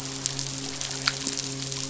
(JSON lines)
{"label": "biophony, midshipman", "recorder": "SoundTrap 500"}